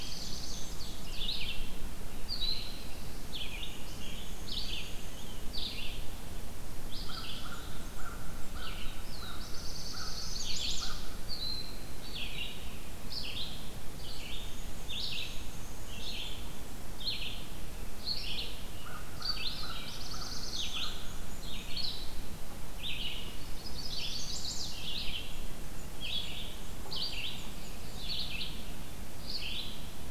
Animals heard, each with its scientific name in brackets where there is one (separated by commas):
American Crow (Corvus brachyrhynchos), Black-throated Blue Warbler (Setophaga caerulescens), Ovenbird (Seiurus aurocapilla), Chestnut-sided Warbler (Setophaga pensylvanica), Black-and-white Warbler (Mniotilta varia), Red-eyed Vireo (Vireo olivaceus)